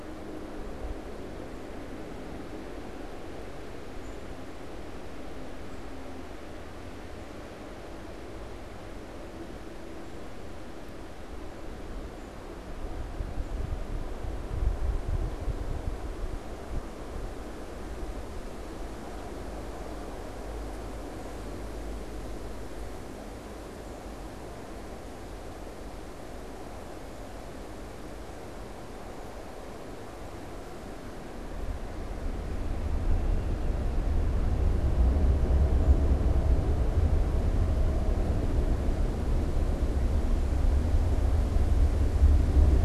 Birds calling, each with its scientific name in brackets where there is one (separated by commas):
Black-capped Chickadee (Poecile atricapillus)